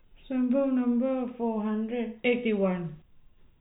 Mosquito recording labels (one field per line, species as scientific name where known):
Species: no mosquito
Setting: cup